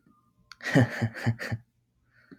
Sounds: Laughter